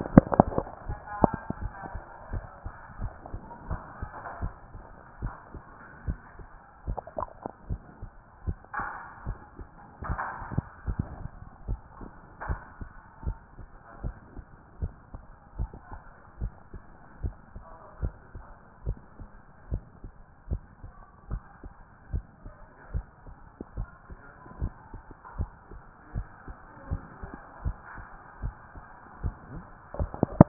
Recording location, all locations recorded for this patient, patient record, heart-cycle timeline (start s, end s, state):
mitral valve (MV)
pulmonary valve (PV)+tricuspid valve (TV)+mitral valve (MV)
#Age: nan
#Sex: Female
#Height: nan
#Weight: nan
#Pregnancy status: True
#Murmur: Absent
#Murmur locations: nan
#Most audible location: nan
#Systolic murmur timing: nan
#Systolic murmur shape: nan
#Systolic murmur grading: nan
#Systolic murmur pitch: nan
#Systolic murmur quality: nan
#Diastolic murmur timing: nan
#Diastolic murmur shape: nan
#Diastolic murmur grading: nan
#Diastolic murmur pitch: nan
#Diastolic murmur quality: nan
#Outcome: Normal
#Campaign: 2014 screening campaign
0.00	11.58	unannotated
11.58	11.66	diastole
11.66	11.80	S1
11.80	12.00	systole
12.00	12.10	S2
12.10	12.48	diastole
12.48	12.60	S1
12.60	12.80	systole
12.80	12.90	S2
12.90	13.24	diastole
13.24	13.36	S1
13.36	13.58	systole
13.58	13.66	S2
13.66	14.02	diastole
14.02	14.14	S1
14.14	14.36	systole
14.36	14.44	S2
14.44	14.80	diastole
14.80	14.92	S1
14.92	15.12	systole
15.12	15.22	S2
15.22	15.58	diastole
15.58	15.70	S1
15.70	15.90	systole
15.90	16.00	S2
16.00	16.40	diastole
16.40	16.52	S1
16.52	16.72	systole
16.72	16.82	S2
16.82	17.22	diastole
17.22	17.34	S1
17.34	17.54	systole
17.54	17.64	S2
17.64	18.00	diastole
18.00	18.14	S1
18.14	18.34	systole
18.34	18.44	S2
18.44	18.86	diastole
18.86	18.98	S1
18.98	19.18	systole
19.18	19.28	S2
19.28	19.70	diastole
19.70	19.82	S1
19.82	20.02	systole
20.02	20.12	S2
20.12	20.50	diastole
20.50	20.62	S1
20.62	20.82	systole
20.82	20.92	S2
20.92	21.30	diastole
21.30	21.42	S1
21.42	21.62	systole
21.62	21.72	S2
21.72	22.12	diastole
22.12	22.24	S1
22.24	22.44	systole
22.44	22.54	S2
22.54	22.92	diastole
22.92	23.04	S1
23.04	23.26	systole
23.26	23.36	S2
23.36	23.76	diastole
23.76	23.88	S1
23.88	24.10	systole
24.10	24.18	S2
24.18	24.60	diastole
24.60	24.72	S1
24.72	24.92	systole
24.92	25.02	S2
25.02	25.38	diastole
25.38	25.50	S1
25.50	25.72	systole
25.72	25.80	S2
25.80	26.14	diastole
26.14	26.26	S1
26.26	26.46	systole
26.46	26.56	S2
26.56	26.90	diastole
26.90	27.02	S1
27.02	27.22	systole
27.22	27.32	S2
27.32	27.64	diastole
27.64	27.76	S1
27.76	27.96	systole
27.96	28.06	S2
28.06	28.42	diastole
28.42	28.54	S1
28.54	28.74	systole
28.74	28.84	S2
28.84	29.22	diastole
29.22	30.48	unannotated